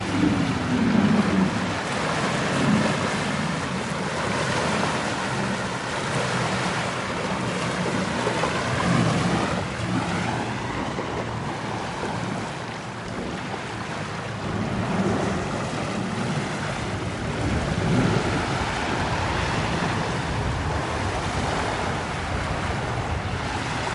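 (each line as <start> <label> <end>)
0.0 Ocean waves rumbling. 23.9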